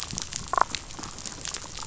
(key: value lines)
label: biophony, damselfish
recorder: SoundTrap 500